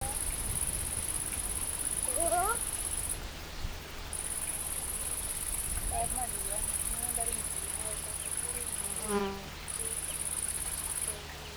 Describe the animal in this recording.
Tettigonia viridissima, an orthopteran